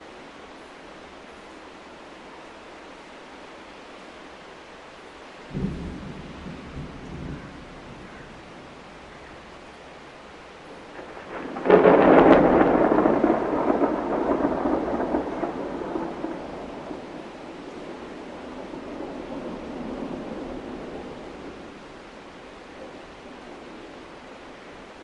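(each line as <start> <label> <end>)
0.0 Rain splashing. 25.0
5.5 A quiet thunder rumbles in the distance. 7.5
7.8 Birds chirping in the background. 9.9
11.2 A loud thunder slowly fades and echoes. 21.9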